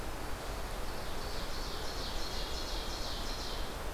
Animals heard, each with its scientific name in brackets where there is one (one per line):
Ovenbird (Seiurus aurocapilla)